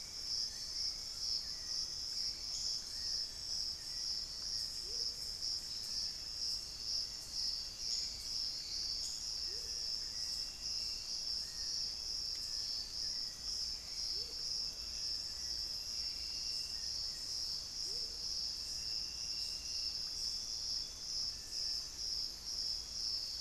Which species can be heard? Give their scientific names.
Turdus hauxwelli, Nystalus obamai, Crypturellus soui, Momotus momota, Sirystes albocinereus